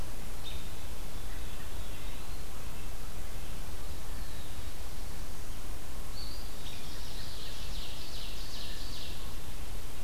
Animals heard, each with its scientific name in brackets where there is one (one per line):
Ovenbird (Seiurus aurocapilla)
Red-breasted Nuthatch (Sitta canadensis)
Eastern Wood-Pewee (Contopus virens)